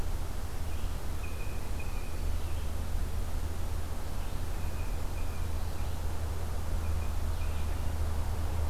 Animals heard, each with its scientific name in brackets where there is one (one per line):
Blue Jay (Cyanocitta cristata)
Red-eyed Vireo (Vireo olivaceus)